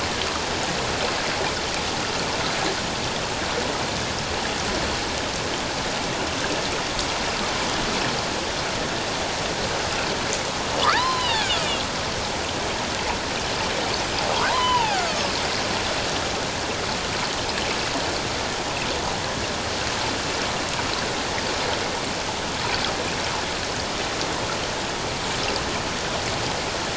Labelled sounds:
10.8	11.5	killer whale, northern resident, A clan, AB subclan, H01 pod, 0.81 to 4.2 kHz
14.5	15.3	killer whale, northern resident, A clan, AB subclan, H01 pod, 0.78 to 3.2 kHz

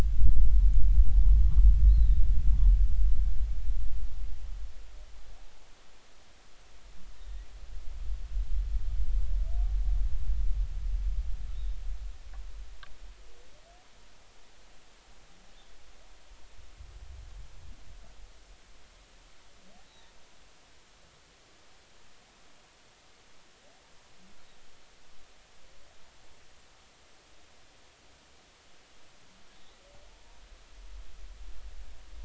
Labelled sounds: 1.9	2.2	humpback whale, 3.5 to 4.3 kHz
11.5	11.8	humpback whale, 3.4 to 3.8 kHz
19.9	20.2	humpback whale, 3.6 to 4.1 kHz

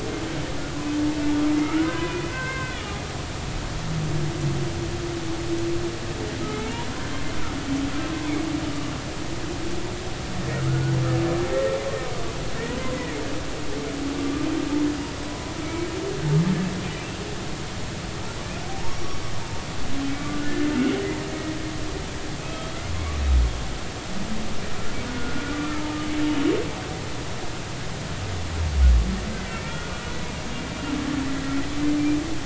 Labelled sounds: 1.5	2.9	humpback whale, 0.96 to 2.7 kHz
6.4	6.8	humpback whale, 1.2 to 2.4 kHz
10.6	10.9	humpback whale, 1.2 to 1.5 kHz
11.5	11.8	humpback whale, 1.8 to 1.9 kHz
15.3	15.9	humpback whale, 0.96 to 2.3 kHz
18.9	19.2	humpback whale, 5.4 to 5.7 kHz
20.3	21.1	humpback whale, 1.4 to 3.0 kHz
22.4	22.7	humpback whale, 1.2 to 3.3 kHz
25.2	25.6	humpback whale, 1.3 to 1.5 kHz
29.5	29.9	humpback whale, 1.3 to 2.4 kHz

